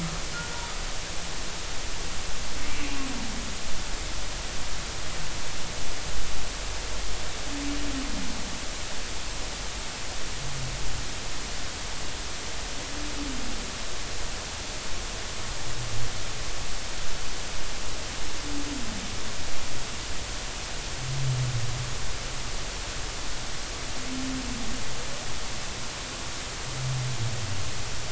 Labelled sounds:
0.3	0.6	humpback whale, 1.3 to 1.5 kHz

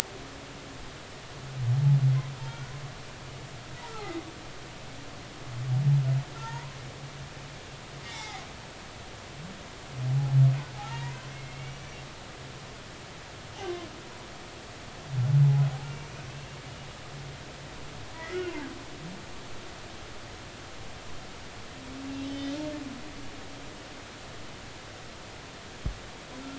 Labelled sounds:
2.5	2.7	humpback whale, 1.3 to 1.5 kHz
4.0	4.3	humpback whale, 2.0 to 2.2 kHz
6.3	6.8	humpback whale, 0.86 to 2.1 kHz
8.1	8.4	humpback whale, 0.80 to 4.0 kHz
10.8	11.8	humpback whale, 0.80 to 2.9 kHz
15.8	16.6	humpback whale, 2.2 to 2.8 kHz
18.1	18.5	humpback whale, 1.3 to 2.2 kHz
22.2	22.6	humpback whale, 1.9 to 3.4 kHz

